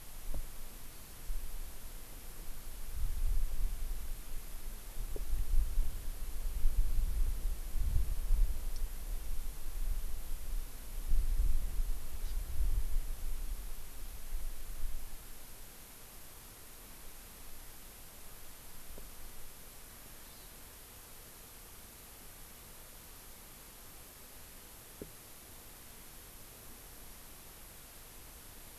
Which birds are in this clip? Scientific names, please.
Chlorodrepanis virens